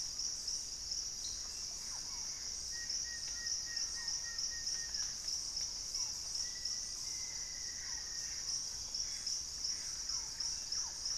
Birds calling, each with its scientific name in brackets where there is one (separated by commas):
Purple-throated Fruitcrow (Querula purpurata), Thrush-like Wren (Campylorhynchus turdinus), Black-faced Antthrush (Formicarius analis), Barred Forest-Falcon (Micrastur ruficollis), Buff-throated Woodcreeper (Xiphorhynchus guttatus), Plain-winged Antshrike (Thamnophilus schistaceus), Gray Antbird (Cercomacra cinerascens), Collared Trogon (Trogon collaris)